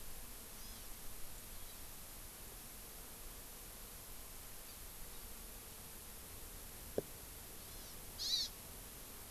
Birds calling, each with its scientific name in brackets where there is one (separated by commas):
Hawaii Amakihi (Chlorodrepanis virens)